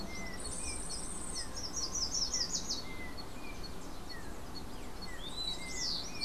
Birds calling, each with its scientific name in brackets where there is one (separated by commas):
Rufous-collared Sparrow (Zonotrichia capensis), Yellow-backed Oriole (Icterus chrysater), Yellow-faced Grassquit (Tiaris olivaceus), Slate-throated Redstart (Myioborus miniatus)